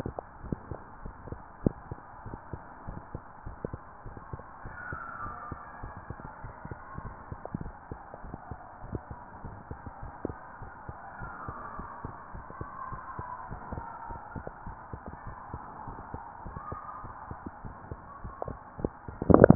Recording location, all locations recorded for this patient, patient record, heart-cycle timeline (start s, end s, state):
tricuspid valve (TV)
aortic valve (AV)+pulmonary valve (PV)+tricuspid valve (TV)+mitral valve (MV)
#Age: Child
#Sex: Female
#Height: 135.0 cm
#Weight: 40.5 kg
#Pregnancy status: False
#Murmur: Absent
#Murmur locations: nan
#Most audible location: nan
#Systolic murmur timing: nan
#Systolic murmur shape: nan
#Systolic murmur grading: nan
#Systolic murmur pitch: nan
#Systolic murmur quality: nan
#Diastolic murmur timing: nan
#Diastolic murmur shape: nan
#Diastolic murmur grading: nan
#Diastolic murmur pitch: nan
#Diastolic murmur quality: nan
#Outcome: Normal
#Campaign: 2015 screening campaign
0.00	0.21	unannotated
0.21	0.42	diastole
0.42	0.60	S1
0.60	0.70	systole
0.70	0.82	S2
0.82	1.04	diastole
1.04	1.16	S1
1.16	1.26	systole
1.26	1.40	S2
1.40	1.62	diastole
1.62	1.76	S1
1.76	1.86	systole
1.86	1.98	S2
1.98	2.24	diastole
2.24	2.40	S1
2.40	2.50	systole
2.50	2.60	S2
2.60	2.86	diastole
2.86	3.02	S1
3.02	3.10	systole
3.10	3.22	S2
3.22	3.44	diastole
3.44	3.58	S1
3.58	3.64	systole
3.64	3.80	S2
3.80	4.04	diastole
4.04	4.16	S1
4.16	4.28	systole
4.28	4.40	S2
4.40	4.64	diastole
4.64	4.78	S1
4.78	4.88	systole
4.88	5.00	S2
5.00	5.24	diastole
5.24	5.38	S1
5.38	5.48	systole
5.48	5.60	S2
5.60	5.82	diastole
5.82	5.94	S1
5.94	6.06	systole
6.06	6.18	S2
6.18	6.42	diastole
6.42	6.54	S1
6.54	6.66	systole
6.66	6.78	S2
6.78	7.04	diastole
7.04	7.18	S1
7.18	7.28	systole
7.28	7.38	S2
7.38	7.62	diastole
7.62	7.76	S1
7.76	7.90	systole
7.90	8.00	S2
8.00	8.24	diastole
8.24	8.38	S1
8.38	8.50	systole
8.50	8.58	S2
8.58	8.84	diastole
8.84	9.02	S1
9.02	9.10	systole
9.10	9.20	S2
9.20	9.44	diastole
9.44	9.60	S1
9.60	9.70	systole
9.70	9.80	S2
9.80	10.02	diastole
10.02	10.12	S1
10.12	10.24	systole
10.24	10.36	S2
10.36	10.60	diastole
10.60	10.72	S1
10.72	10.88	systole
10.88	10.96	S2
10.96	11.20	diastole
11.20	11.34	S1
11.34	11.46	systole
11.46	11.56	S2
11.56	11.78	diastole
11.78	11.90	S1
11.90	12.00	systole
12.00	12.12	S2
12.12	12.34	diastole
12.34	12.46	S1
12.46	12.56	systole
12.56	12.68	S2
12.68	12.90	diastole
12.90	13.02	S1
13.02	13.14	systole
13.14	13.26	S2
13.26	13.50	diastole
13.50	13.62	S1
13.62	13.70	systole
13.70	13.86	S2
13.86	14.10	diastole
14.10	14.22	S1
14.22	14.32	systole
14.32	14.46	S2
14.46	14.68	diastole
14.68	14.80	S1
14.80	14.92	systole
14.92	15.02	S2
15.02	15.26	diastole
15.26	15.38	S1
15.38	15.50	systole
15.50	15.62	S2
15.62	15.86	diastole
15.86	15.98	S1
15.98	16.12	systole
16.12	16.22	S2
16.22	16.46	diastole
16.46	16.58	S1
16.58	16.68	systole
16.68	16.78	S2
16.78	17.04	diastole
17.04	17.16	S1
17.16	17.28	systole
17.28	17.38	S2
17.38	17.64	diastole
17.64	17.76	S1
17.76	17.90	systole
17.90	18.00	S2
18.00	18.22	diastole
18.22	18.34	S1
18.34	18.46	systole
18.46	18.60	S2
18.60	18.80	diastole
18.80	19.55	unannotated